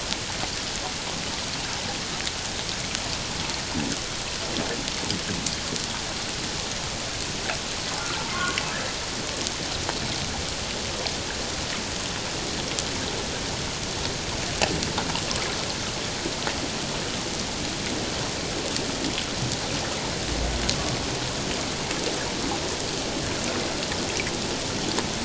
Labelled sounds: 8.0	8.6	humpback whale, 1.0 to 1.5 kHz

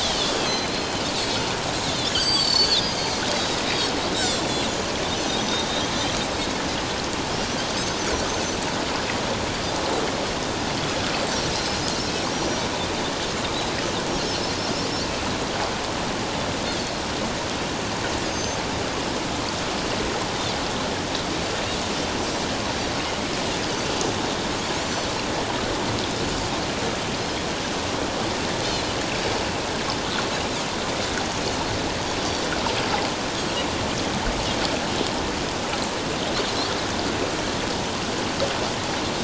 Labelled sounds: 0.0	1.0	Pacific white-sided dolphin, 2.9 to 6.3 kHz
1.9	3.2	Pacific white-sided dolphin, 2.9 to 7.8 kHz
3.6	3.9	Pacific white-sided dolphin, 3.6 to 4.0 kHz
4.5	4.9	Pacific white-sided dolphin, 6.6 to 7.0 kHz
13.4	13.7	Pacific white-sided dolphin, 3.6 to 4.0 kHz
18.2	18.6	Pacific white-sided dolphin, 6.2 to 6.7 kHz
24.8	25.1	Pacific white-sided dolphin, 4.3 to 6.0 kHz

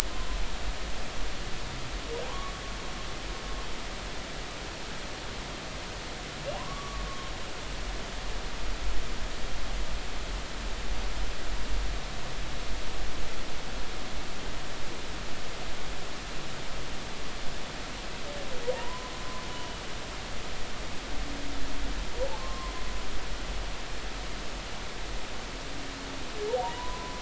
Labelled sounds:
2.3	2.5	humpback whale, 0.80 to 1.2 kHz
6.6	7.3	humpback whale, 0.93 to 1.2 kHz
18.6	19.1	humpback whale, 0.86 to 1.1 kHz
22.4	22.7	humpback whale, 0.96 to 1.1 kHz
26.6	27.1	humpback whale, 0.86 to 1.1 kHz

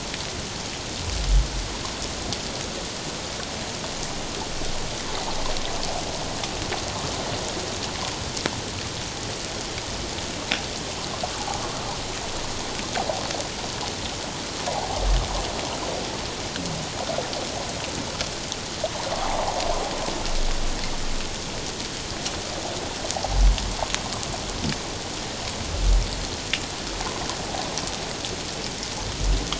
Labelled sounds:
14.7	15.0	water noise, 0.78 to 0.97 kHz
19.2	19.6	water noise, 0.78 to 1.2 kHz

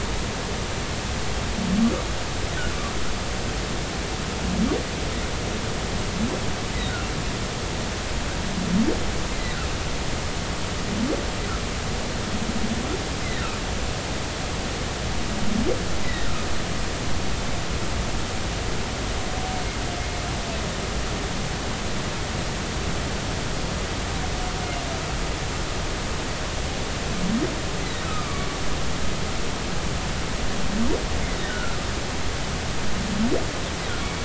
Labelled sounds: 9.3	9.6	humpback whale, 1.9 to 2.1 kHz
16.0	16.3	humpback whale, 1.8 to 2.0 kHz
28.1	28.5	humpback whale, 1.1 to 1.4 kHz
31.5	31.8	humpback whale, 1.3 to 1.6 kHz
34.0	34.2	humpback whale, 2.2 to 2.3 kHz

